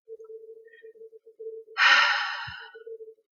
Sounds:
Sigh